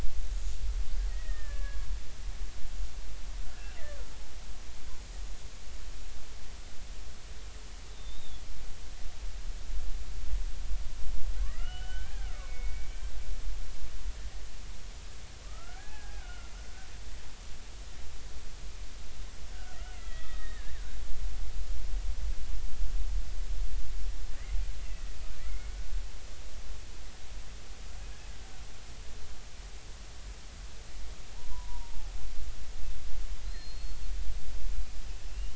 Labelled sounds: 1.1	1.9	killer whale, Bigg's (transient), 1.1 to 2.0 kHz
7.9	8.4	killer whale, Bigg's (transient), 3.3 to 3.9 kHz
11.4	12.9	killer whale, Bigg's (transient), 1.0 to 3.1 kHz
15.4	16.5	killer whale, Bigg's (transient), 0.80 to 1.8 kHz
19.9	20.7	killer whale, Bigg's (transient), 1.2 to 3.6 kHz
24.8	25.7	killer whale, Bigg's (transient), 1.3 to 2.5 kHz
31.3	32.1	killer whale, Bigg's (transient), 0.80 to 1.1 kHz
33.4	34.1	killer whale, Bigg's (transient), 4.0 to 4.4 kHz
35.3	35.5	killer whale, Bigg's (transient), 2.6 to 3.1 kHz

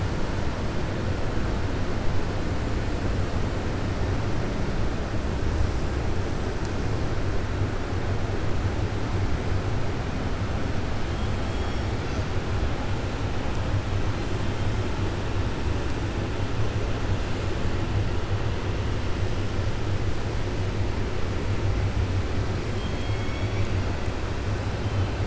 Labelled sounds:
22.7	23.7	killer whale, 2.2 to 3.4 kHz

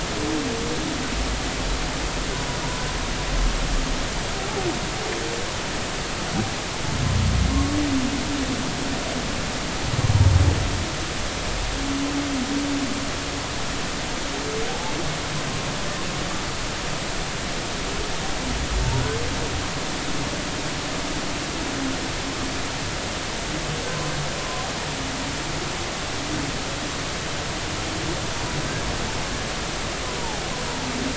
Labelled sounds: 7.5	7.8	humpback whale, 0.99 to 1.2 kHz
14.7	14.9	humpback whale, 0.80 to 0.93 kHz
24.4	24.6	humpback whale, 0.99 to 1.1 kHz
30.2	30.4	humpback whale, 0.80 to 0.99 kHz

